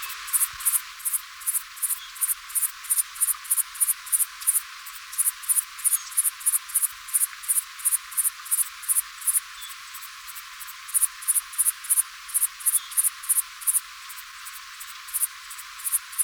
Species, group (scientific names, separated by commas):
Tettigonia hispanica, Orthoptera